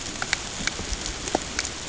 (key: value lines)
label: ambient
recorder: HydroMoth